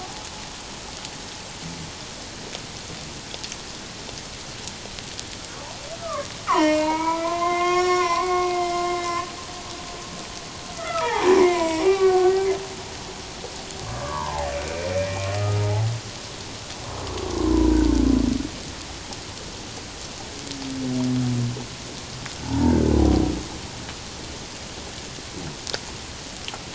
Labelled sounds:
6.0	9.3	humpback whale, 0.78 to 6.9 kHz
10.7	12.5	humpback whale, 0.78 to 2.5 kHz
13.9	15.6	humpback whale, 0.78 to 2.6 kHz
17.6	17.9	humpback whale, 1.4 to 1.6 kHz
22.4	22.9	humpback whale, 0.84 to 1.7 kHz

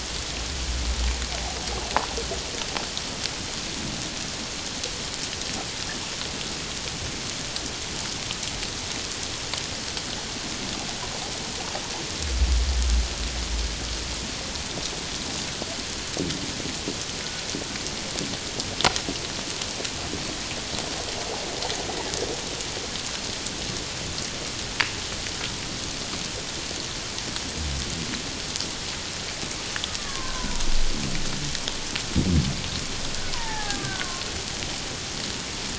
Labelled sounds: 30.0	30.6	killer whale, Bigg's (transient), 0.94 to 1.6 kHz
33.3	34.2	killer whale, Bigg's (transient), 0.78 to 2.0 kHz

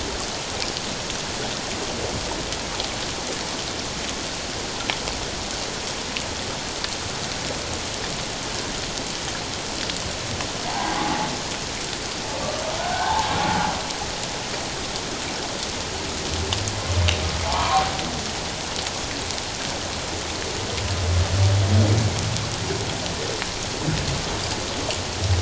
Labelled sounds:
10.7	11.3	humpback whale, 0.78 to 1.1 kHz
12.8	13.3	humpback whale, 0.78 to 1.7 kHz
17.4	17.8	humpback whale, 0.78 to 1.3 kHz

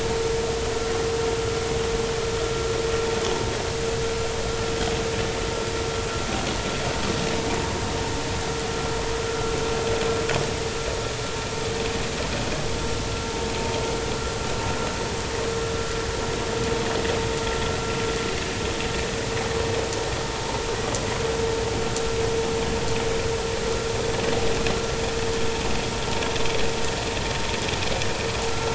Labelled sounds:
28.5	28.7	vessel noise, 1.3 to 1.4 kHz

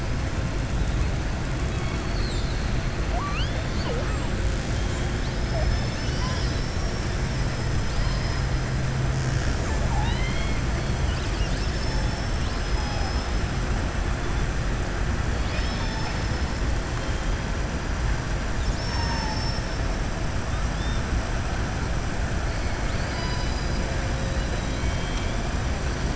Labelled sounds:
1.6	2.7	killer whale, southern resident, 2.2 to 4.9 kHz
3.0	4.2	killer whale, southern resident, 0.49 to 4.9 kHz
7.8	8.4	killer whale, southern resident, 4.0 to 5.8 kHz
9.6	10.6	killer whale, southern resident, 0.63 to 4.3 kHz
15.3	16.5	killer whale, southern resident, 1.9 to 5.3 kHz
22.8	23.8	killer whale, southern resident, 1.0 to 5.3 kHz
24.1	25.4	killer whale, southern resident, 2.2 to 4.6 kHz

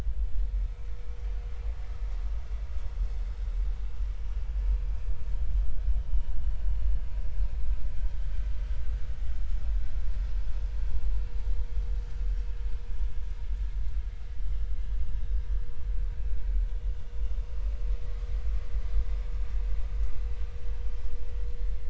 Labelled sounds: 7.9	8.2	vessel noise, 3.0 to 3.3 kHz
14.3	14.6	vessel noise, 2.9 to 3.1 kHz
20.1	20.4	vessel noise, 3.9 to 4.0 kHz

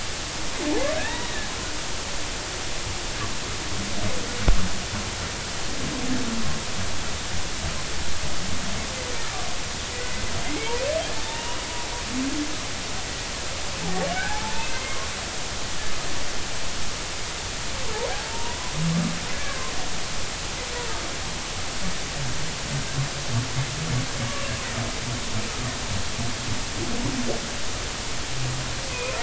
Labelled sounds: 0.9	1.5	humpback whale, 0.83 to 2.0 kHz
9.9	10.2	humpback whale, 1.9 to 2.0 kHz
11.2	11.6	humpback whale, 0.86 to 2.9 kHz
14.1	15.7	humpback whale, 0.80 to 2.2 kHz
18.1	19.7	humpback whale, 0.80 to 1.8 kHz
28.9	29.2	humpback whale, 0.96 to 1.1 kHz

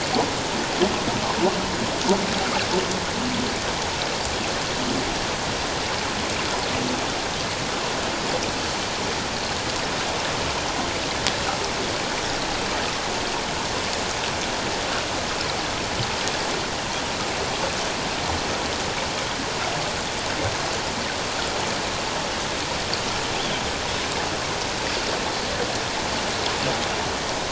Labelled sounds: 23.3	23.6	Pacific white-sided dolphin, 3.0 to 3.5 kHz

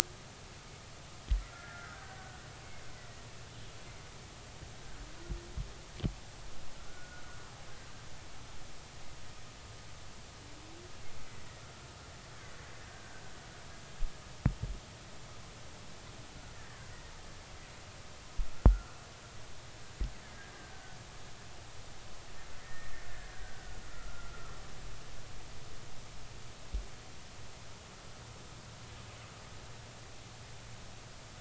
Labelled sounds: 1.4	2.4	killer whale, Bigg's (transient), 1.2 to 1.9 kHz
6.9	7.2	killer whale, Bigg's (transient), 1.3 to 1.5 kHz
12.9	13.1	killer whale, Bigg's (transient), 1.5 to 1.7 kHz
18.7	18.9	killer whale, Bigg's (transient), 1.1 to 1.5 kHz
20.7	21.0	killer whale, Bigg's (transient), 1.4 to 1.6 kHz
22.6	24.3	killer whale, Bigg's (transient), 1.2 to 2.0 kHz

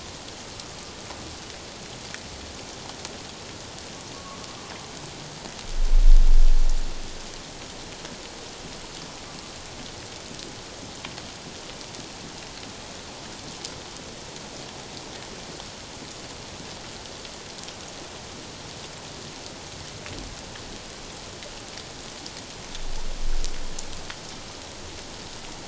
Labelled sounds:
4.1	4.4	humpback whale, 1.0 to 1.2 kHz

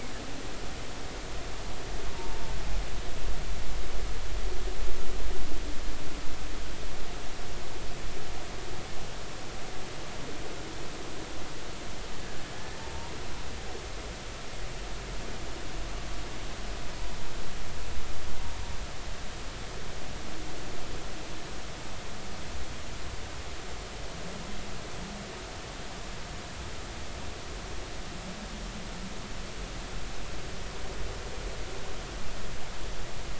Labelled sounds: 2.2	2.4	humpback whale, 0.86 to 0.96 kHz
12.8	13.1	humpback whale, 0.86 to 0.99 kHz

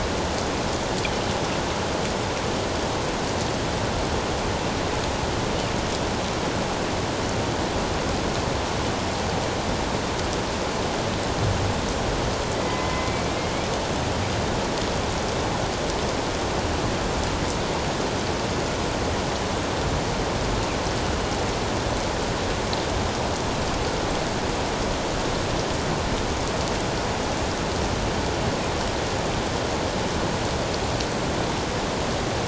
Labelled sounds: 12.6	13.1	killer whale, northern resident, A clan, AA subclan, 1.9 to 2.1 kHz

